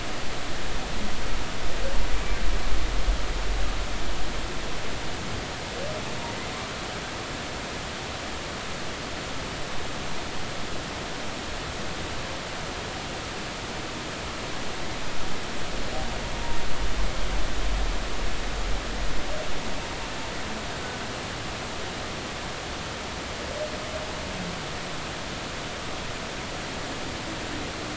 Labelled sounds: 2.1	2.4	humpback whale, 2.3 to 2.4 kHz

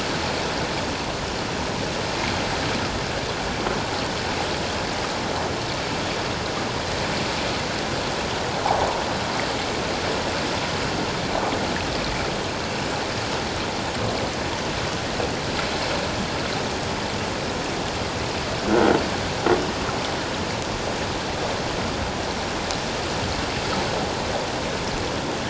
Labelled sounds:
18.7	19.0	croaking sound likely from a nearby submerged object, 1.3 to 1.6 kHz

